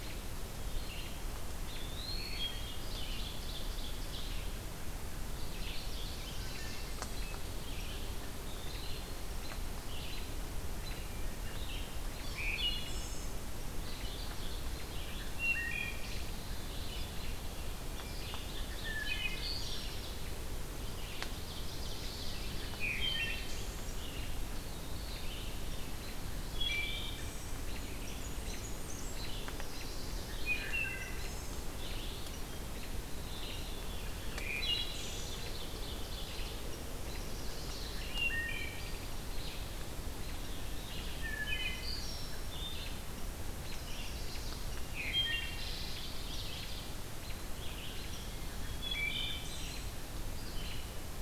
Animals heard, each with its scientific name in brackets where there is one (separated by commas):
Chestnut-sided Warbler (Setophaga pensylvanica), American Robin (Turdus migratorius), Ovenbird (Seiurus aurocapilla), Eastern Wood-Pewee (Contopus virens), Wood Thrush (Hylocichla mustelina), Mourning Warbler (Geothlypis philadelphia), Blackburnian Warbler (Setophaga fusca)